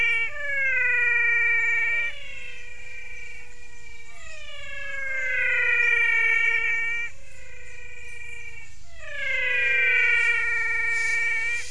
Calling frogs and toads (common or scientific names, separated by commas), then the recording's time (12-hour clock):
menwig frog
6:30pm